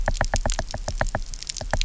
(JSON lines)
{"label": "biophony, knock", "recorder": "SoundTrap 300"}